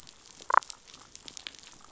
{"label": "biophony, damselfish", "recorder": "SoundTrap 500"}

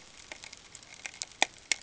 {"label": "ambient", "recorder": "HydroMoth"}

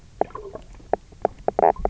{"label": "biophony, knock croak", "recorder": "SoundTrap 300"}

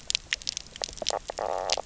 {"label": "biophony, knock croak", "recorder": "SoundTrap 300"}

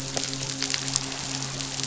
{"label": "biophony, midshipman", "recorder": "SoundTrap 500"}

